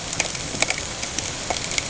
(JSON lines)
{"label": "ambient", "recorder": "HydroMoth"}